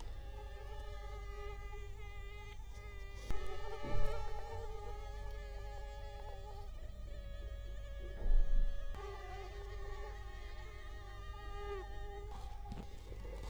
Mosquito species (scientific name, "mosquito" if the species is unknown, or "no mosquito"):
Culex quinquefasciatus